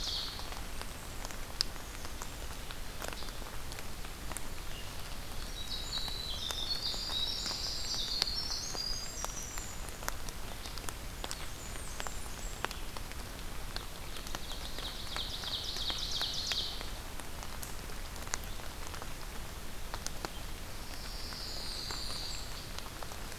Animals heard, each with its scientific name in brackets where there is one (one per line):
Ovenbird (Seiurus aurocapilla)
Blackburnian Warbler (Setophaga fusca)
Pine Warbler (Setophaga pinus)
Black-capped Chickadee (Poecile atricapillus)
Winter Wren (Troglodytes hiemalis)